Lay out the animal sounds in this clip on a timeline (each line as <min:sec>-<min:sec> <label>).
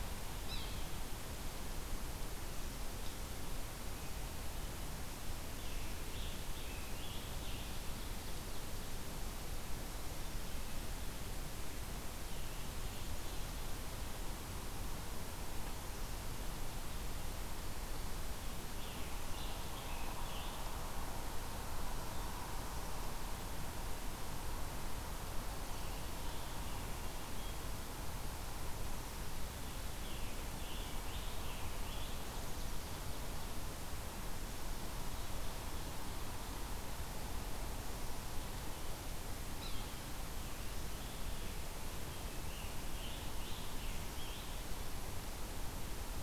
0:00.4-0:00.7 Yellow-bellied Sapsucker (Sphyrapicus varius)
0:05.0-0:08.7 Scarlet Tanager (Piranga olivacea)
0:12.2-0:13.7 Scarlet Tanager (Piranga olivacea)
0:18.4-0:20.7 Scarlet Tanager (Piranga olivacea)
0:29.8-0:32.3 Scarlet Tanager (Piranga olivacea)
0:39.5-0:39.9 Yellow-bellied Sapsucker (Sphyrapicus varius)
0:42.2-0:44.7 Scarlet Tanager (Piranga olivacea)